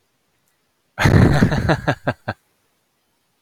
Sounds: Laughter